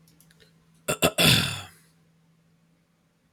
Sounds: Throat clearing